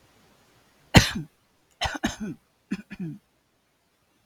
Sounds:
Throat clearing